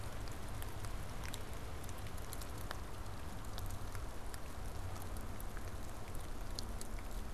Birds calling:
Canada Goose (Branta canadensis)

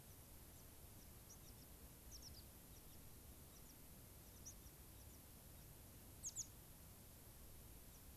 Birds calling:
White-crowned Sparrow (Zonotrichia leucophrys)

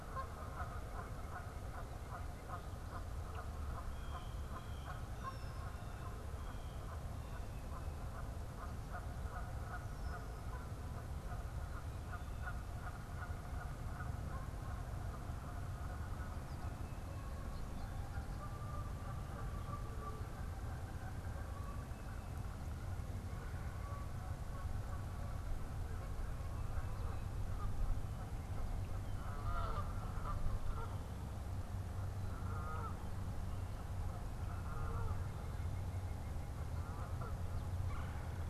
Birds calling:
Canada Goose (Branta canadensis)
White-breasted Nuthatch (Sitta carolinensis)
Red-bellied Woodpecker (Melanerpes carolinus)
Red-winged Blackbird (Agelaius phoeniceus)
Blue Jay (Cyanocitta cristata)

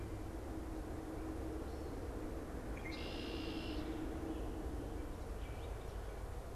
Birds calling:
Red-winged Blackbird (Agelaius phoeniceus)

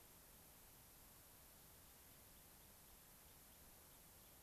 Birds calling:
Gray-crowned Rosy-Finch (Leucosticte tephrocotis)

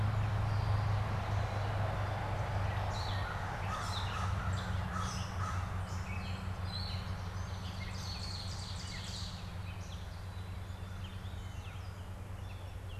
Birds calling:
Ovenbird (Seiurus aurocapilla)
Gray Catbird (Dumetella carolinensis)
Black-capped Chickadee (Poecile atricapillus)
American Crow (Corvus brachyrhynchos)

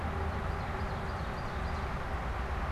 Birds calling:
Ovenbird (Seiurus aurocapilla)

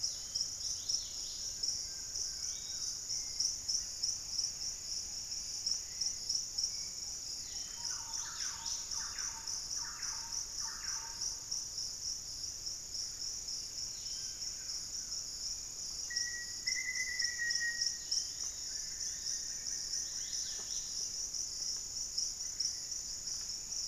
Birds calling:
Black-faced Antthrush (Formicarius analis)
Dusky-capped Greenlet (Pachysylvia hypoxantha)
Hauxwell's Thrush (Turdus hauxwelli)
Black-tailed Trogon (Trogon melanurus)
unidentified bird
Yellow-margined Flycatcher (Tolmomyias assimilis)
Wing-barred Piprites (Piprites chloris)
Collared Trogon (Trogon collaris)
Pygmy Antwren (Myrmotherula brachyura)
Thrush-like Wren (Campylorhynchus turdinus)

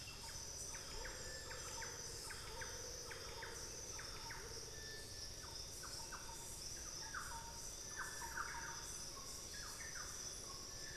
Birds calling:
Thrush-like Wren (Campylorhynchus turdinus)
Amazonian Motmot (Momotus momota)

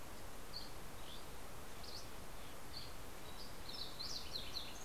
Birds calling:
Lincoln's Sparrow (Melospiza lincolnii)
Dusky Flycatcher (Empidonax oberholseri)

